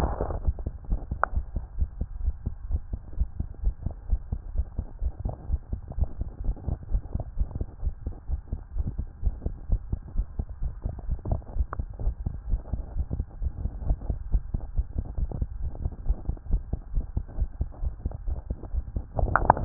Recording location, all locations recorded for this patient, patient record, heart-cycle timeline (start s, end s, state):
tricuspid valve (TV)
aortic valve (AV)+pulmonary valve (PV)+tricuspid valve (TV)+mitral valve (MV)
#Age: Child
#Sex: Female
#Height: 138.0 cm
#Weight: 37.1 kg
#Pregnancy status: False
#Murmur: Absent
#Murmur locations: nan
#Most audible location: nan
#Systolic murmur timing: nan
#Systolic murmur shape: nan
#Systolic murmur grading: nan
#Systolic murmur pitch: nan
#Systolic murmur quality: nan
#Diastolic murmur timing: nan
#Diastolic murmur shape: nan
#Diastolic murmur grading: nan
#Diastolic murmur pitch: nan
#Diastolic murmur quality: nan
#Outcome: Normal
#Campaign: 2015 screening campaign
0.00	1.61	unannotated
1.61	1.78	diastole
1.78	1.88	S1
1.88	2.00	systole
2.00	2.08	S2
2.08	2.22	diastole
2.22	2.34	S1
2.34	2.46	systole
2.46	2.54	S2
2.54	2.70	diastole
2.70	2.82	S1
2.82	2.92	systole
2.92	3.00	S2
3.00	3.20	diastole
3.20	3.28	S1
3.28	3.38	systole
3.38	3.46	S2
3.46	3.63	diastole
3.63	3.76	S1
3.76	3.84	systole
3.84	3.94	S2
3.94	4.10	diastole
4.10	4.20	S1
4.20	4.31	systole
4.31	4.40	S2
4.40	4.56	diastole
4.56	4.66	S1
4.66	4.77	systole
4.77	4.86	S2
4.86	5.04	diastole
5.04	5.14	S1
5.14	5.26	systole
5.26	5.34	S2
5.34	5.50	diastole
5.50	5.58	S1
5.58	5.72	systole
5.72	5.80	S2
5.80	6.00	diastole
6.00	6.10	S1
6.10	6.20	systole
6.20	6.28	S2
6.28	6.46	diastole
6.46	6.56	S1
6.56	6.68	systole
6.68	6.78	S2
6.78	6.92	diastole
6.92	7.02	S1
7.02	7.14	systole
7.14	7.26	S2
7.26	7.38	diastole
7.38	7.48	S1
7.48	7.59	systole
7.59	7.68	S2
7.68	7.84	diastole
7.84	7.96	S1
7.96	8.05	systole
8.05	8.14	S2
8.14	8.30	diastole
8.30	8.42	S1
8.42	8.51	systole
8.51	8.60	S2
8.60	8.76	diastole
8.76	8.86	S1
8.86	8.97	systole
8.97	9.06	S2
9.06	9.24	diastole
9.24	9.34	S1
9.34	9.44	systole
9.44	9.54	S2
9.54	9.68	diastole
9.68	9.82	S1
9.82	9.90	systole
9.90	10.00	S2
10.00	10.16	diastole
10.16	10.26	S1
10.26	10.37	systole
10.37	10.46	S2
10.46	10.62	diastole
10.62	10.73	S1
10.73	10.83	systole
10.83	10.94	S2
10.94	11.08	diastole
11.08	11.20	S1
11.20	11.30	systole
11.30	11.42	S2
11.42	11.56	diastole
11.56	11.66	S1
11.66	11.77	systole
11.77	11.88	S2
11.88	12.04	diastole
12.04	12.15	S1
12.15	12.24	systole
12.24	12.34	S2
12.34	12.48	diastole
12.48	12.60	S1
12.60	12.70	systole
12.70	12.82	S2
12.82	12.95	diastole
12.95	13.08	S1
13.08	13.18	systole
13.18	13.24	S2
13.24	13.41	diastole
13.41	13.52	S1
13.52	13.62	systole
13.62	13.72	S2
13.72	13.86	diastole
13.86	13.98	S1
13.98	14.07	systole
14.07	14.18	S2
14.18	14.32	diastole
14.32	14.44	S1
14.44	14.52	systole
14.52	14.62	S2
14.62	14.76	diastole
14.76	14.86	S1
14.86	14.94	systole
14.94	15.04	S2
15.04	15.20	diastole
15.20	15.30	S1
15.30	15.39	systole
15.39	15.50	S2
15.50	15.65	diastole
15.65	19.65	unannotated